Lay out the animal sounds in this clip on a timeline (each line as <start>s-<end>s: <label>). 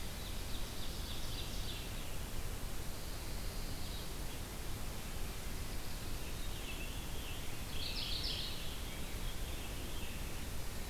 0.0s-2.1s: Ovenbird (Seiurus aurocapilla)
2.8s-4.1s: Pine Warbler (Setophaga pinus)
6.0s-8.6s: Scarlet Tanager (Piranga olivacea)
7.5s-8.7s: Mourning Warbler (Geothlypis philadelphia)
9.1s-10.4s: Veery (Catharus fuscescens)